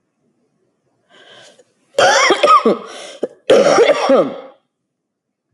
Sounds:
Cough